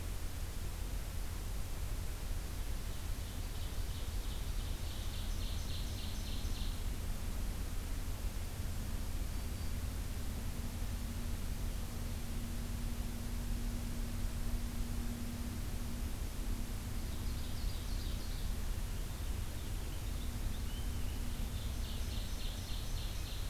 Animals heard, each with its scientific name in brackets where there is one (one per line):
Black-throated Green Warbler (Setophaga virens)
Purple Finch (Haemorhous purpureus)
Ovenbird (Seiurus aurocapilla)